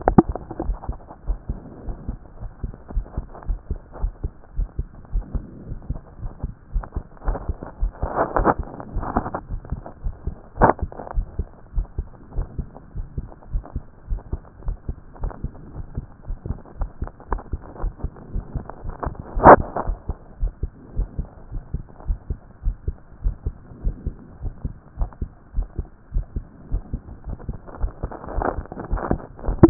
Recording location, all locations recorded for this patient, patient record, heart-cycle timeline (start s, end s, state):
pulmonary valve (PV)
aortic valve (AV)+pulmonary valve (PV)+tricuspid valve (TV)+mitral valve (MV)
#Age: Adolescent
#Sex: Male
#Height: 165.0 cm
#Weight: 55.7 kg
#Pregnancy status: False
#Murmur: Absent
#Murmur locations: nan
#Most audible location: nan
#Systolic murmur timing: nan
#Systolic murmur shape: nan
#Systolic murmur grading: nan
#Systolic murmur pitch: nan
#Systolic murmur quality: nan
#Diastolic murmur timing: nan
#Diastolic murmur shape: nan
#Diastolic murmur grading: nan
#Diastolic murmur pitch: nan
#Diastolic murmur quality: nan
#Outcome: Abnormal
#Campaign: 2014 screening campaign
0.00	0.64	unannotated
0.64	0.76	S1
0.76	0.88	systole
0.88	0.96	S2
0.96	1.26	diastole
1.26	1.38	S1
1.38	1.48	systole
1.48	1.58	S2
1.58	1.86	diastole
1.86	1.96	S1
1.96	2.08	systole
2.08	2.18	S2
2.18	2.40	diastole
2.40	2.50	S1
2.50	2.62	systole
2.62	2.72	S2
2.72	2.94	diastole
2.94	3.06	S1
3.06	3.16	systole
3.16	3.26	S2
3.26	3.48	diastole
3.48	3.60	S1
3.60	3.70	systole
3.70	3.80	S2
3.80	4.00	diastole
4.00	4.12	S1
4.12	4.22	systole
4.22	4.32	S2
4.32	4.56	diastole
4.56	4.68	S1
4.68	4.78	systole
4.78	4.86	S2
4.86	5.12	diastole
5.12	5.24	S1
5.24	5.34	systole
5.34	5.44	S2
5.44	5.66	diastole
5.66	5.78	S1
5.78	5.90	systole
5.90	6.00	S2
6.00	6.22	diastole
6.22	6.32	S1
6.32	6.44	systole
6.44	6.52	S2
6.52	6.74	diastole
6.74	6.84	S1
6.84	6.96	systole
6.96	7.04	S2
7.04	7.26	diastole
7.26	7.38	S1
7.38	7.48	systole
7.48	7.56	S2
7.56	7.80	diastole
7.80	7.92	S1
7.92	8.02	systole
8.02	8.10	S2
8.10	8.38	diastole
8.38	8.50	S1
8.50	8.58	systole
8.58	8.66	S2
8.66	8.94	diastole
8.94	9.06	S1
9.06	9.16	systole
9.16	9.26	S2
9.26	9.50	diastole
9.50	9.60	S1
9.60	9.72	systole
9.72	9.82	S2
9.82	10.04	diastole
10.04	10.14	S1
10.14	10.26	systole
10.26	10.36	S2
10.36	10.58	diastole
10.58	10.72	S1
10.72	10.82	systole
10.82	10.90	S2
10.90	11.14	diastole
11.14	11.26	S1
11.26	11.38	systole
11.38	11.48	S2
11.48	11.74	diastole
11.74	11.86	S1
11.86	11.98	systole
11.98	12.06	S2
12.06	12.36	diastole
12.36	12.46	S1
12.46	12.58	systole
12.58	12.68	S2
12.68	12.96	diastole
12.96	13.06	S1
13.06	13.18	systole
13.18	13.28	S2
13.28	13.52	diastole
13.52	13.64	S1
13.64	13.74	systole
13.74	13.84	S2
13.84	14.10	diastole
14.10	14.22	S1
14.22	14.32	systole
14.32	14.40	S2
14.40	14.66	diastole
14.66	14.78	S1
14.78	14.88	systole
14.88	14.96	S2
14.96	15.22	diastole
15.22	15.32	S1
15.32	15.44	systole
15.44	15.52	S2
15.52	15.74	diastole
15.74	15.86	S1
15.86	15.96	systole
15.96	16.06	S2
16.06	16.28	diastole
16.28	16.38	S1
16.38	16.48	systole
16.48	16.58	S2
16.58	16.78	diastole
16.78	16.90	S1
16.90	17.02	systole
17.02	17.10	S2
17.10	17.30	diastole
17.30	17.42	S1
17.42	17.52	systole
17.52	17.60	S2
17.60	17.82	diastole
17.82	17.92	S1
17.92	18.02	systole
18.02	18.10	S2
18.10	18.32	diastole
18.32	18.44	S1
18.44	18.56	systole
18.56	18.64	S2
18.64	18.84	diastole
18.84	18.94	S1
18.94	19.06	systole
19.06	19.14	S2
19.14	19.36	diastole
19.36	29.70	unannotated